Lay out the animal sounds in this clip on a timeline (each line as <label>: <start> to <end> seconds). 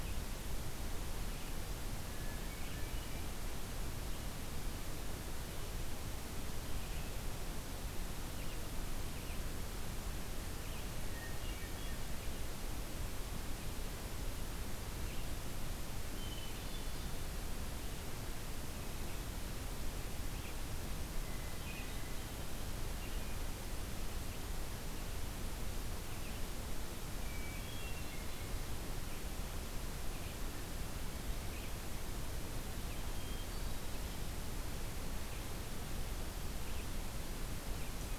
Red-eyed Vireo (Vireo olivaceus): 0.0 to 38.2 seconds
Hermit Thrush (Catharus guttatus): 1.7 to 3.5 seconds
Hermit Thrush (Catharus guttatus): 10.8 to 12.6 seconds
Hermit Thrush (Catharus guttatus): 15.9 to 17.5 seconds
Hermit Thrush (Catharus guttatus): 21.1 to 22.4 seconds
Hermit Thrush (Catharus guttatus): 27.1 to 28.6 seconds
Hermit Thrush (Catharus guttatus): 32.7 to 34.3 seconds